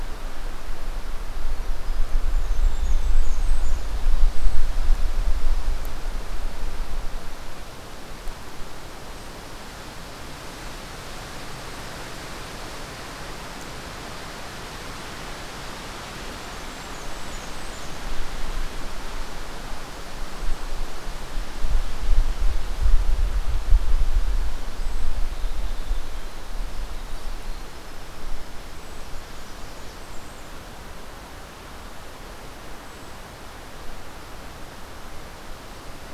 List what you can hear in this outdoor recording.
Blackburnian Warbler, Brown Creeper, Winter Wren